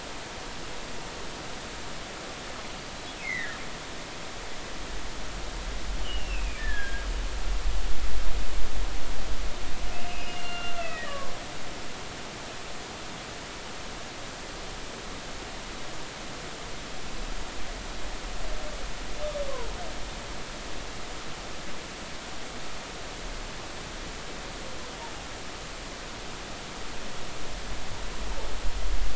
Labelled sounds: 3.2	3.6	humpback whale, 1.6 to 2.7 kHz
6.0	7.1	humpback whale, 1.5 to 3.4 kHz
10.0	11.2	humpback whale, 1.3 to 2.9 kHz
12.1	12.3	humpback whale, 0.99 to 1.2 kHz

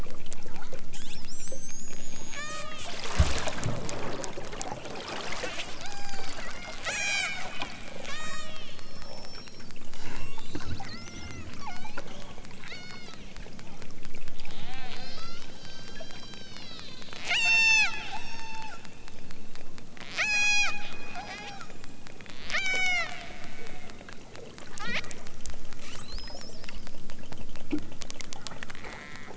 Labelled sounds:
0.4	0.9	killer whale, southern Alaska resident, 0.60 to 2.4 kHz
2.3	3.0	killer whale, southern Alaska resident, 0.32 to 6.4 kHz
5.8	7.5	killer whale, southern Alaska resident, 0.28 to 8.0 kHz
8.1	9.6	killer whale, southern Alaska resident, 0.69 to 8.0 kHz
9.9	12.0	killer whale, southern Alaska resident, 0.37 to 8.0 kHz
12.6	13.2	killer whale, southern Alaska resident, 0.55 to 8.0 kHz
14.5	18.9	killer whale, southern Alaska resident, 0.32 to 8.0 kHz
19.9	20.8	killer whale, southern Alaska resident, 0.46 to 8.0 kHz
21.1	21.7	killer whale, southern Alaska resident, 0.55 to 8.0 kHz
22.4	23.2	killer whale, southern Alaska resident, 0.32 to 8.0 kHz
24.7	25.0	killer whale, southern Alaska resident, 0.64 to 6.7 kHz
25.7	26.7	killer whale, southern Alaska resident, 0.69 to 8.0 kHz
28.7	29.3	killer whale, southern Alaska resident, 0.60 to 5.5 kHz

